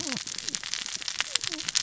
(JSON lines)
{"label": "biophony, cascading saw", "recorder": "SoundTrap 600 or HydroMoth"}